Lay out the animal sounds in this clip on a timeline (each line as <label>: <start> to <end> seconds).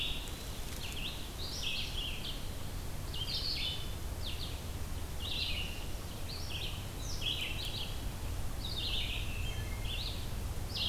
Red-eyed Vireo (Vireo olivaceus): 0.0 to 10.9 seconds
Wood Thrush (Hylocichla mustelina): 9.0 to 10.0 seconds